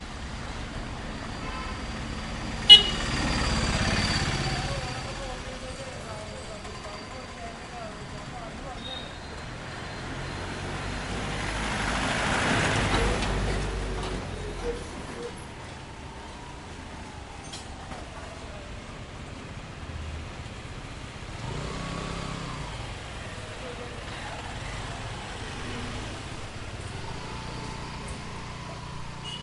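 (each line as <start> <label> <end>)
0.0 The steady humming of a car engine. 10.5
1.3 A car horn honks sharply in the distance. 2.1
2.7 A car honks sharply and quickly. 3.1
3.2 The sound of a heavy engine passing by. 4.8
5.0 People are talking in the distance. 10.0
10.4 A loud, heavy truck is passing by. 15.4
15.5 An engine hums steadily. 29.4
18.4 People are talking in the far distance. 20.8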